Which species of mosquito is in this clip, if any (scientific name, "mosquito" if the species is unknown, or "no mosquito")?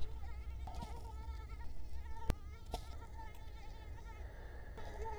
Culex quinquefasciatus